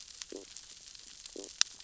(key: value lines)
label: biophony, stridulation
recorder: SoundTrap 600 or HydroMoth